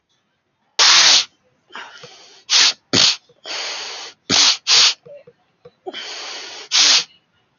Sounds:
Sniff